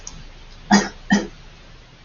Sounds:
Cough